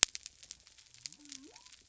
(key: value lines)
label: biophony
recorder: SoundTrap 300